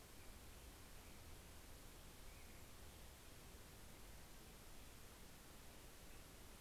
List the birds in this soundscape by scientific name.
Turdus migratorius